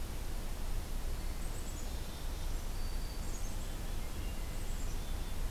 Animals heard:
Black-capped Chickadee (Poecile atricapillus), Black-throated Green Warbler (Setophaga virens)

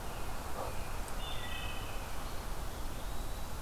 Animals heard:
Wood Thrush (Hylocichla mustelina), Eastern Wood-Pewee (Contopus virens), American Robin (Turdus migratorius)

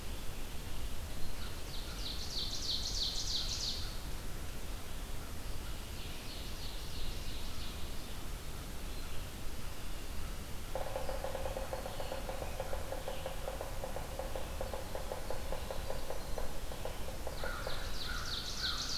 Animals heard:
Yellow-bellied Sapsucker (Sphyrapicus varius), Winter Wren (Troglodytes hiemalis), Black-throated Green Warbler (Setophaga virens), American Crow (Corvus brachyrhynchos), Ovenbird (Seiurus aurocapilla), Red-eyed Vireo (Vireo olivaceus)

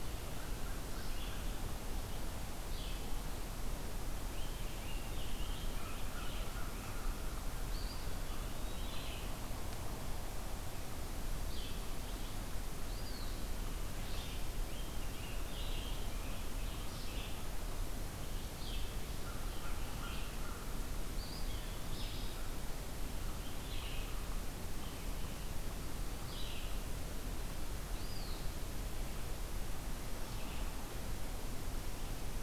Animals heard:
Red-eyed Vireo (Vireo olivaceus), American Crow (Corvus brachyrhynchos), Scarlet Tanager (Piranga olivacea), Eastern Wood-Pewee (Contopus virens)

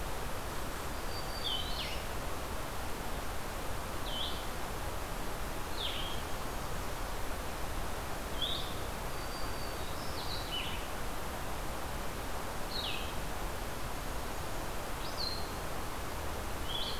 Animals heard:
Blackburnian Warbler (Setophaga fusca), Black-throated Green Warbler (Setophaga virens), Blue-headed Vireo (Vireo solitarius)

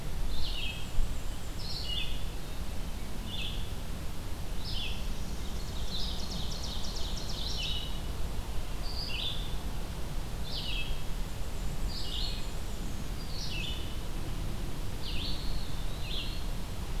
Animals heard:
Eastern Wood-Pewee (Contopus virens), Red-eyed Vireo (Vireo olivaceus), Black-and-white Warbler (Mniotilta varia), Northern Parula (Setophaga americana), Ovenbird (Seiurus aurocapilla)

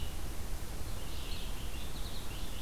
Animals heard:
Purple Finch (Haemorhous purpureus), Red-eyed Vireo (Vireo olivaceus)

